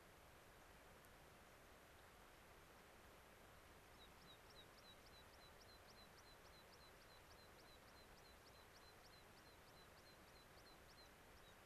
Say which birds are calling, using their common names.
American Pipit